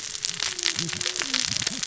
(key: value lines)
label: biophony, cascading saw
recorder: SoundTrap 600 or HydroMoth